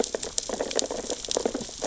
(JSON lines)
{"label": "biophony, sea urchins (Echinidae)", "recorder": "SoundTrap 600 or HydroMoth"}